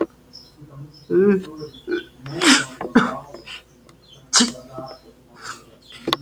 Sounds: Sneeze